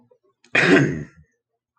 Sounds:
Throat clearing